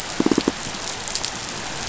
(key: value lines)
label: biophony, pulse
recorder: SoundTrap 500